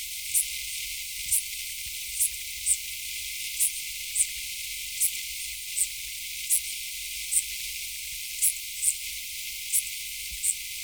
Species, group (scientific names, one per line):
Eupholidoptera schmidti
Orthoptera